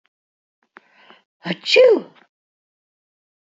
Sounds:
Sneeze